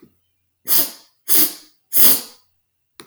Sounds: Sniff